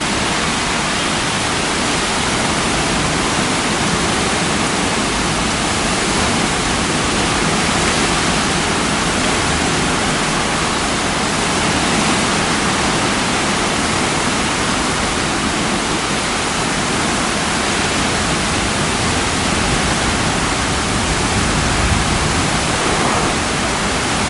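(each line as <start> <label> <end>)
0.0 Heavy rain is pouring down continuously. 24.3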